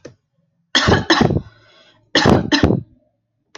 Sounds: Cough